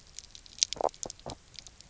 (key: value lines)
label: biophony, knock croak
recorder: SoundTrap 300